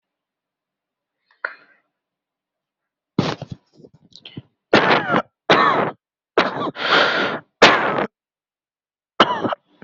{"expert_labels": [{"quality": "poor", "cough_type": "dry", "dyspnea": true, "wheezing": false, "stridor": false, "choking": false, "congestion": false, "nothing": false, "diagnosis": "COVID-19", "severity": "severe"}], "age": 22, "gender": "male", "respiratory_condition": false, "fever_muscle_pain": false, "status": "COVID-19"}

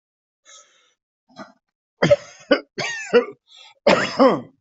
{"expert_labels": [{"quality": "good", "cough_type": "wet", "dyspnea": false, "wheezing": false, "stridor": false, "choking": false, "congestion": false, "nothing": true, "diagnosis": "upper respiratory tract infection", "severity": "mild"}], "age": 53, "gender": "male", "respiratory_condition": false, "fever_muscle_pain": false, "status": "COVID-19"}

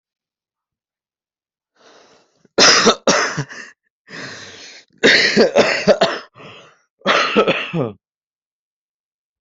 {"expert_labels": [{"quality": "ok", "cough_type": "dry", "dyspnea": false, "wheezing": false, "stridor": false, "choking": false, "congestion": false, "nothing": true, "diagnosis": "healthy cough", "severity": "pseudocough/healthy cough"}], "age": 18, "gender": "male", "respiratory_condition": false, "fever_muscle_pain": false, "status": "symptomatic"}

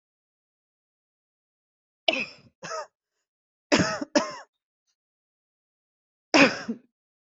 {"expert_labels": [{"quality": "good", "cough_type": "dry", "dyspnea": false, "wheezing": false, "stridor": false, "choking": false, "congestion": false, "nothing": true, "diagnosis": "upper respiratory tract infection", "severity": "mild"}], "age": 54, "gender": "female", "respiratory_condition": false, "fever_muscle_pain": false, "status": "symptomatic"}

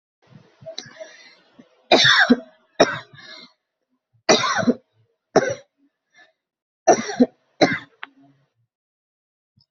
{"expert_labels": [{"quality": "good", "cough_type": "unknown", "dyspnea": false, "wheezing": false, "stridor": false, "choking": false, "congestion": false, "nothing": true, "diagnosis": "upper respiratory tract infection", "severity": "severe"}], "age": 27, "gender": "male", "respiratory_condition": false, "fever_muscle_pain": false, "status": "COVID-19"}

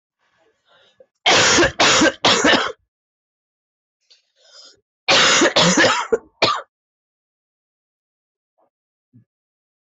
{"expert_labels": [{"quality": "ok", "cough_type": "unknown", "dyspnea": false, "wheezing": false, "stridor": false, "choking": false, "congestion": false, "nothing": true, "diagnosis": "lower respiratory tract infection", "severity": "severe"}], "age": 38, "gender": "female", "respiratory_condition": true, "fever_muscle_pain": false, "status": "healthy"}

